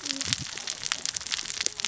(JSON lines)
{"label": "biophony, cascading saw", "recorder": "SoundTrap 600 or HydroMoth"}